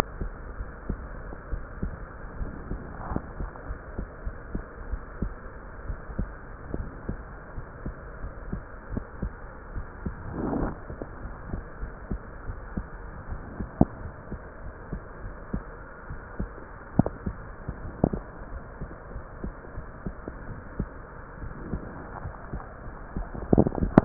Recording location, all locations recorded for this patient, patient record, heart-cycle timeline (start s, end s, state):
pulmonary valve (PV)
aortic valve (AV)+pulmonary valve (PV)+tricuspid valve (TV)+mitral valve (MV)
#Age: Child
#Sex: Female
#Height: 144.0 cm
#Weight: 32.6 kg
#Pregnancy status: False
#Murmur: Absent
#Murmur locations: nan
#Most audible location: nan
#Systolic murmur timing: nan
#Systolic murmur shape: nan
#Systolic murmur grading: nan
#Systolic murmur pitch: nan
#Systolic murmur quality: nan
#Diastolic murmur timing: nan
#Diastolic murmur shape: nan
#Diastolic murmur grading: nan
#Diastolic murmur pitch: nan
#Diastolic murmur quality: nan
#Outcome: Normal
#Campaign: 2015 screening campaign
0.00	0.56	unannotated
0.56	0.68	S1
0.68	0.86	systole
0.86	1.02	S2
1.02	1.48	diastole
1.48	1.64	S1
1.64	1.80	systole
1.80	1.94	S2
1.94	2.34	diastole
2.34	2.50	S1
2.50	2.68	systole
2.68	2.79	S2
2.79	3.08	diastole
3.08	3.22	S1
3.22	3.38	systole
3.38	3.50	S2
3.50	3.96	diastole
3.96	4.10	S1
4.10	4.24	systole
4.24	4.38	S2
4.38	4.86	diastole
4.86	5.04	S1
5.04	5.20	systole
5.20	5.36	S2
5.36	5.80	diastole
5.80	5.96	S1
5.96	6.16	systole
6.16	6.30	S2
6.30	6.72	diastole
6.72	6.88	S1
6.88	7.08	systole
7.08	7.24	S2
7.24	7.84	diastole
7.84	7.96	S1
7.96	8.18	systole
8.18	8.32	S2
8.32	8.90	diastole
8.90	9.02	S1
9.02	9.18	systole
9.18	9.32	S2
9.32	9.72	diastole
9.72	9.88	S1
9.88	10.04	systole
10.04	10.14	S2
10.14	10.52	diastole
10.52	10.70	S1
10.70	10.90	systole
10.90	11.00	S2
11.00	11.48	diastole
11.48	11.66	S1
11.66	11.80	systole
11.80	11.94	S2
11.94	12.44	diastole
12.44	12.58	S1
12.58	12.78	systole
12.78	12.88	S2
12.88	13.30	diastole
13.30	13.44	S1
13.44	13.58	systole
13.58	13.72	S2
13.72	24.05	unannotated